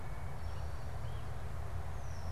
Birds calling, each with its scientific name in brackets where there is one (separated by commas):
Wood Thrush (Hylocichla mustelina), unidentified bird